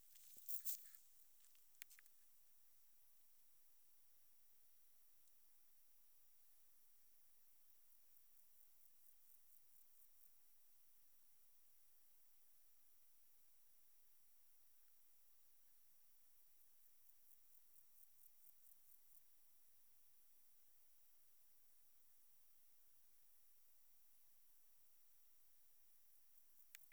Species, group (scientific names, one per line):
Pseudochorthippus parallelus
Orthoptera